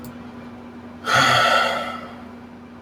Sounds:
Sigh